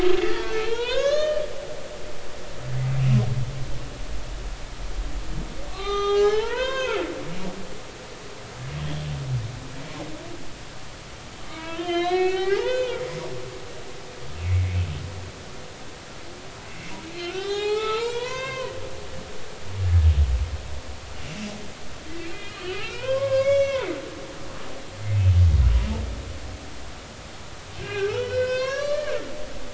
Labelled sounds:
0.2	1.5	humpback whale, 0.86 to 6.8 kHz
5.7	7.0	humpback whale, 0.80 to 6.9 kHz
11.4	13.6	humpback whale, 0.80 to 4.4 kHz
14.4	14.8	humpback whale, 2.0 to 2.3 kHz
17.2	18.7	humpback whale, 0.80 to 4.8 kHz
19.3	19.7	humpback whale, 3.0 to 3.2 kHz
22.3	23.9	humpback whale, 0.90 to 6.2 kHz
27.7	29.2	humpback whale, 0.99 to 5.9 kHz

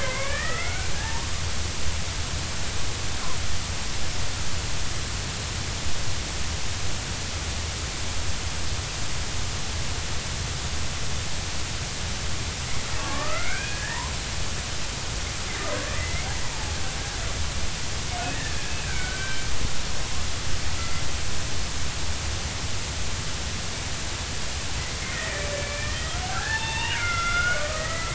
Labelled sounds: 0.0	1.3	killer whale, Bigg's (transient), 0.83 to 2.5 kHz
13.0	14.0	killer whale, Bigg's (transient), 1.0 to 2.6 kHz
16.0	16.3	killer whale, Bigg's (transient), 1.9 to 2.3 kHz
18.3	19.5	killer whale, Bigg's (transient), 1.4 to 2.4 kHz
25.1	28.1	killer whale, Bigg's (transient), 0.80 to 5.1 kHz

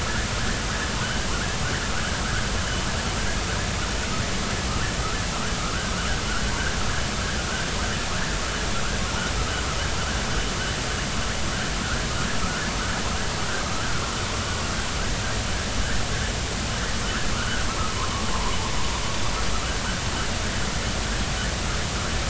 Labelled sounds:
1.3	1.6	vessel noise, 1.3 to 1.8 kHz
17.3	17.6	vessel noise, 1.1 to 1.6 kHz
18.0	18.6	vessel noise, 0.86 to 1.4 kHz

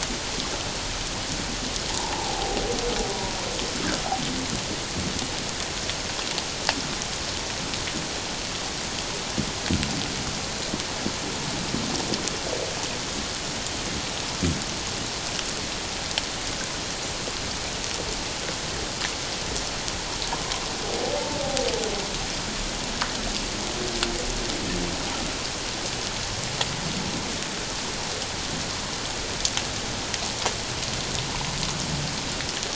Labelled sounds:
1.9	2.6	humpback whale, 0.78 to 1.0 kHz
3.1	3.4	humpback whale, 0.91 to 1.0 kHz

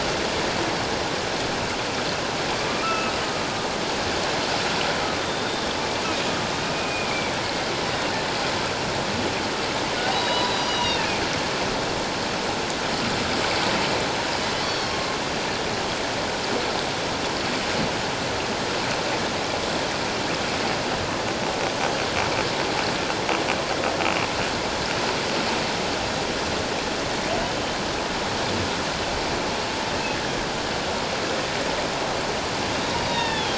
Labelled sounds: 2.8	3.1	humpback whale, 1.2 to 2.9 kHz
5.2	5.7	humpback whale, 3.5 to 3.7 kHz
6.0	6.3	humpback whale, 2.4 to 2.7 kHz
6.7	7.7	humpback whale, 2.1 to 2.5 kHz
10.1	11.1	humpback whale, 0.91 to 5.8 kHz
14.6	15.0	humpback whale, 3.1 to 4.6 kHz
33.1	33.5	humpback whale, 1.7 to 3.8 kHz

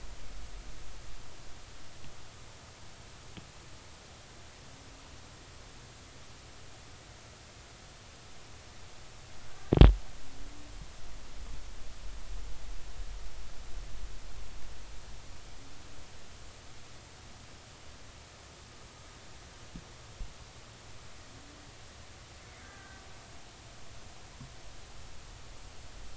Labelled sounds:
22.6	23.0	killer whale, Bigg's (transient), 1.5 to 1.8 kHz

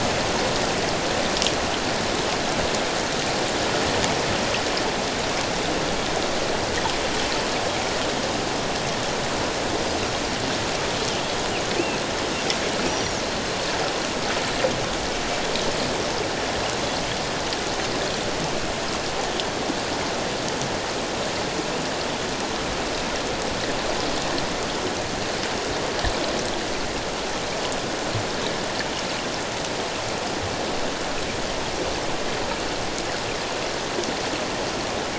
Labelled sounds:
12.9	13.2	Pacific white-sided dolphin, 5.4 to 5.8 kHz

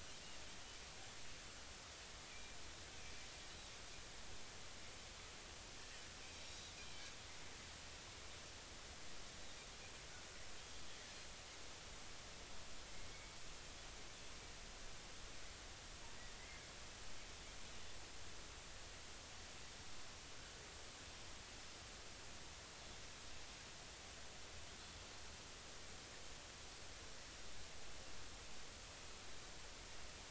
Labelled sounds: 2.3	2.6	Pacific white-sided dolphin, 2.3 to 2.5 kHz
6.4	6.7	Pacific white-sided dolphin, 3.7 to 5.9 kHz
10.6	10.8	Pacific white-sided dolphin, 3.2 to 3.4 kHz
13.1	13.4	Pacific white-sided dolphin, 2.2 to 2.3 kHz

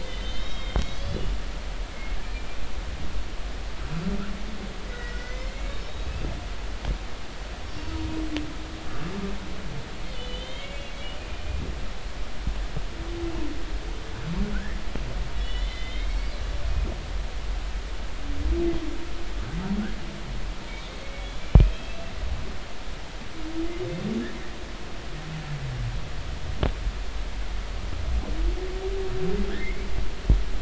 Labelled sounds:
0.0	2.2	humpback whale, 2.0 to 5.2 kHz
4.9	5.7	humpback whale, 1.9 to 2.3 kHz
10.1	11.6	humpback whale, 2.0 to 4.3 kHz
14.5	14.8	humpback whale, 1.3 to 2.0 kHz
15.4	16.3	humpback whale, 1.9 to 4.1 kHz
21.0	22.1	humpback whale, 2.1 to 3.5 kHz
29.6	29.9	humpback whale, 2.0 to 2.4 kHz

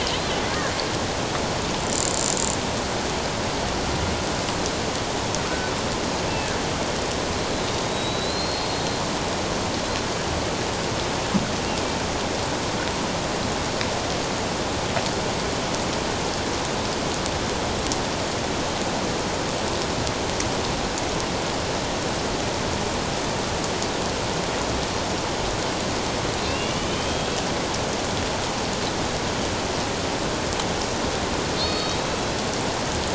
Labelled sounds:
7.9	8.8	killer whale, Bigg's (transient), 3.8 to 4.3 kHz
26.5	27.3	killer whale, Bigg's (transient), 2.6 to 3.3 kHz
31.6	32.2	killer whale, Bigg's (transient), 3.5 to 4.5 kHz

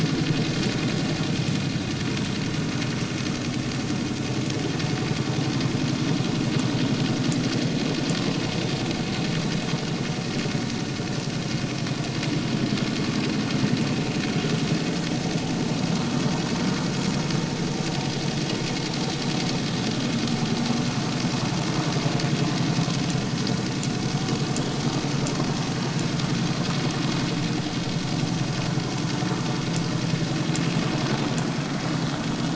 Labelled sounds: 9.2	9.4	vessel noise, 0.99 to 1.1 kHz

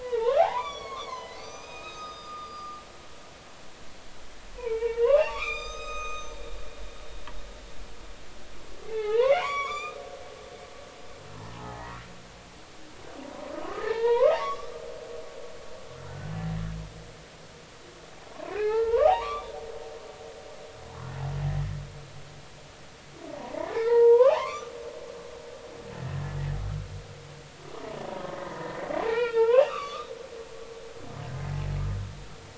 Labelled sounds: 0.0	2.8	humpback whale, 0.80 to 6.5 kHz
4.6	6.4	humpback whale, 0.80 to 7.6 kHz
8.8	10.0	humpback whale, 0.80 to 6.1 kHz
11.5	12.0	humpback whale, 0.80 to 2.0 kHz
13.6	14.7	humpback whale, 0.83 to 3.6 kHz
16.0	16.3	humpback whale, 1.3 to 1.6 kHz
18.3	19.6	humpback whale, 0.80 to 3.7 kHz
23.3	24.7	humpback whale, 0.80 to 6.0 kHz
26.0	26.2	humpback whale, 1.8 to 1.9 kHz
28.3	30.1	humpback whale, 0.80 to 3.9 kHz

